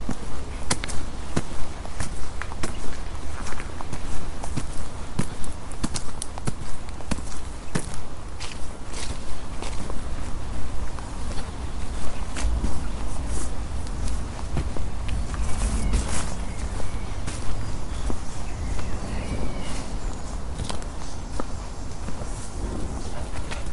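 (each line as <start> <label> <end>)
0.1 Footsteps of a person walking outside in nature. 23.7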